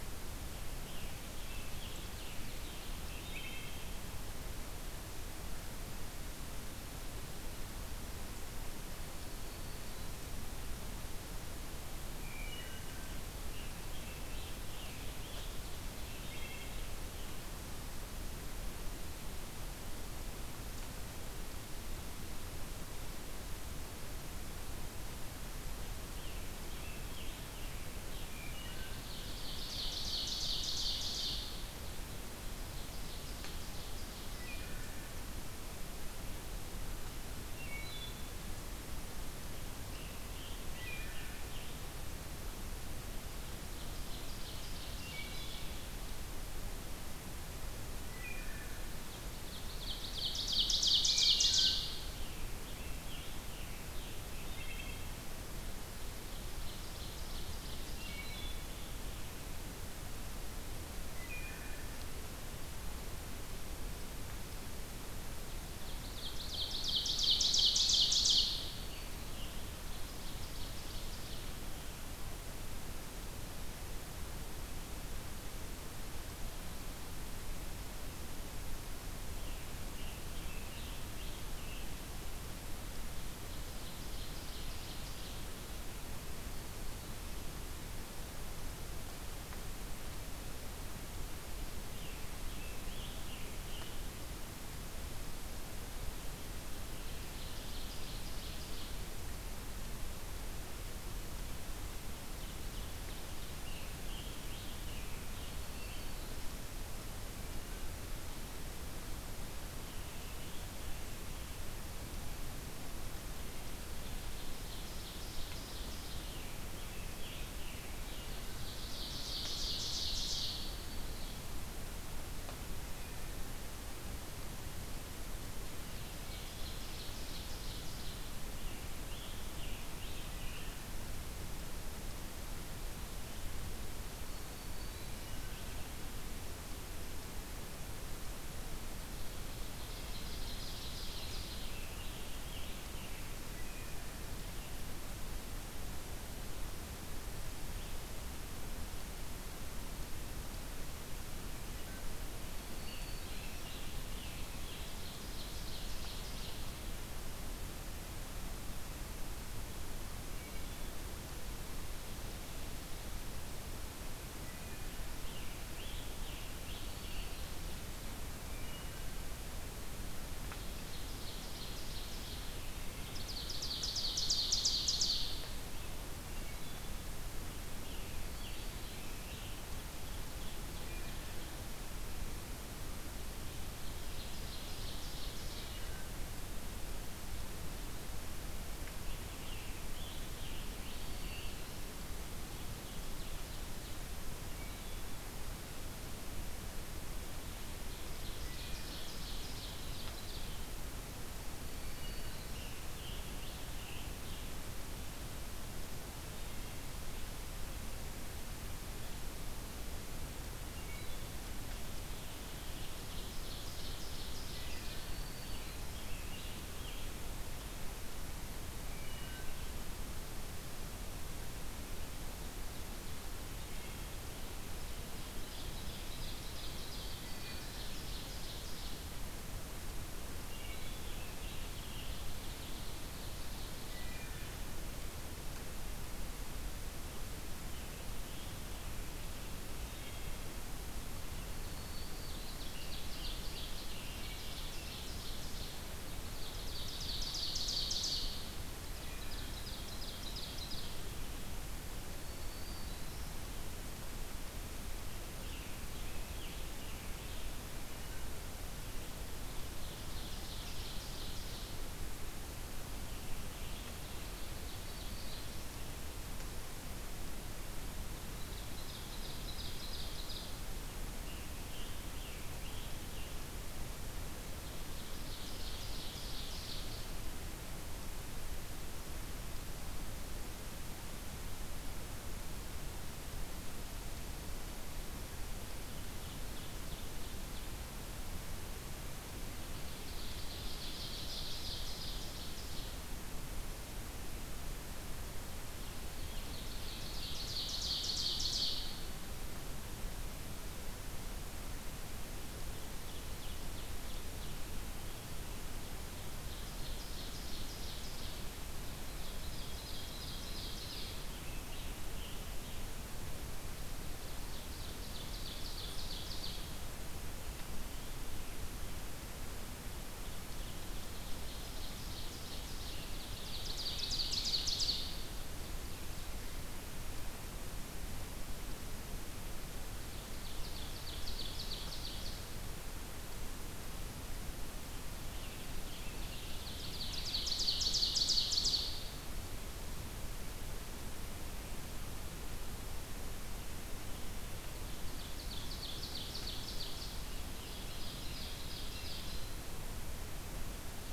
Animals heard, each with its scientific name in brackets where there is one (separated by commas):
Ovenbird (Seiurus aurocapilla), Black-throated Green Warbler (Setophaga virens), Wood Thrush (Hylocichla mustelina), Scarlet Tanager (Piranga olivacea)